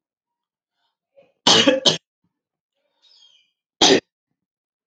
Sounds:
Cough